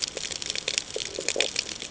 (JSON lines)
{"label": "ambient", "recorder": "HydroMoth"}